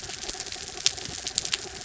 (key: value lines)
label: anthrophony, mechanical
recorder: SoundTrap 300